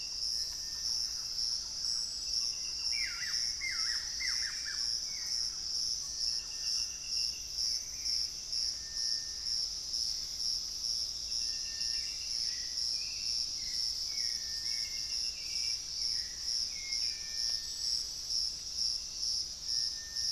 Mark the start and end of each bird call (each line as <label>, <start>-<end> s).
Thrush-like Wren (Campylorhynchus turdinus), 0.0-7.0 s
Buff-throated Woodcreeper (Xiphorhynchus guttatus), 2.7-5.0 s
Hauxwell's Thrush (Turdus hauxwelli), 4.1-5.7 s
unidentified bird, 7.4-8.4 s
Gray Antbird (Cercomacra cinerascens), 7.5-10.8 s
Hauxwell's Thrush (Turdus hauxwelli), 11.7-20.3 s
unidentified bird, 11.9-12.6 s